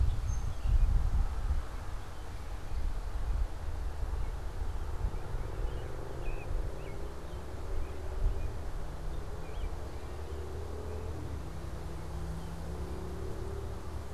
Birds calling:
Song Sparrow (Melospiza melodia)
American Robin (Turdus migratorius)

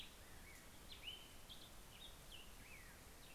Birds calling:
Hermit Warbler (Setophaga occidentalis)
Black-headed Grosbeak (Pheucticus melanocephalus)

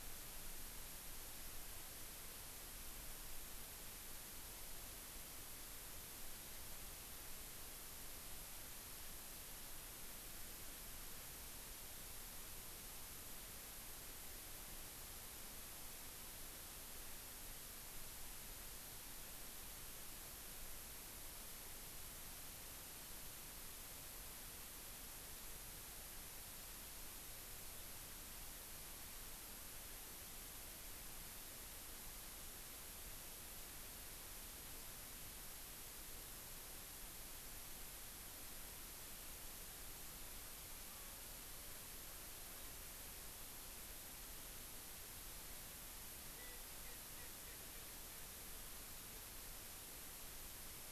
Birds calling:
Erckel's Francolin (Pternistis erckelii)

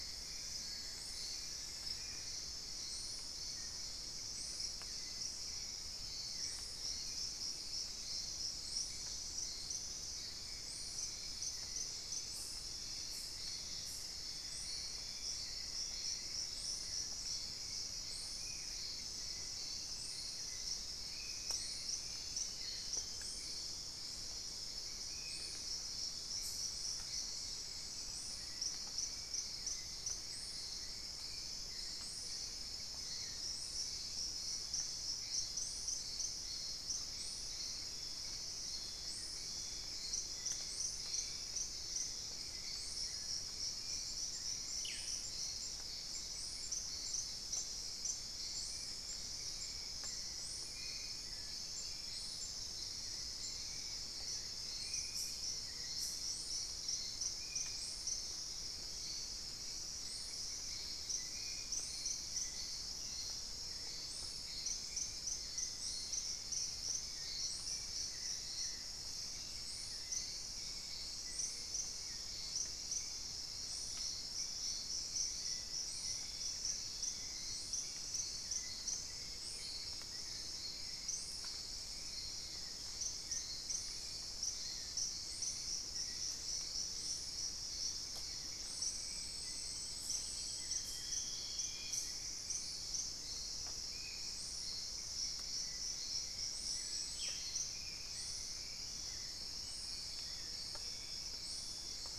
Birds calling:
unidentified bird
Black-faced Antthrush (Formicarius analis)
Dusky-throated Antshrike (Thamnomanes ardesiacus)
Ruddy Quail-Dove (Geotrygon montana)
Spot-winged Antshrike (Pygiptila stellaris)

